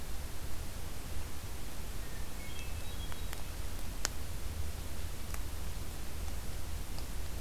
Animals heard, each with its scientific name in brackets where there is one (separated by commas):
Hermit Thrush (Catharus guttatus)